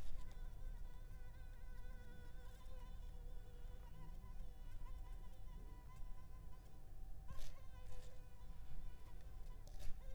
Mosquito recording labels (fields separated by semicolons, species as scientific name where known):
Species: Anopheles arabiensis; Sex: female; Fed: unfed; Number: one; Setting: cup